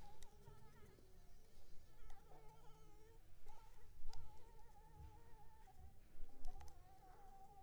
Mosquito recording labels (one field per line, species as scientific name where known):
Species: Anopheles arabiensis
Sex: female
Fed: blood-fed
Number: one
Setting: cup